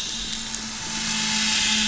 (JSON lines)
{"label": "anthrophony, boat engine", "recorder": "SoundTrap 500"}